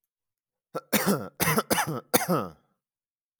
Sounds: Cough